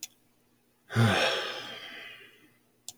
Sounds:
Sigh